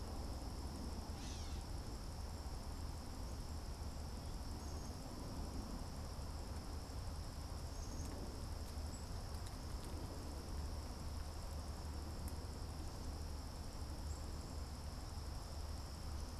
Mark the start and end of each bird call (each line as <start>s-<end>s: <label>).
0.9s-1.8s: Gray Catbird (Dumetella carolinensis)
4.1s-14.7s: Black-capped Chickadee (Poecile atricapillus)